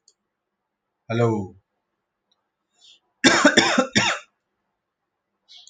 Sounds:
Cough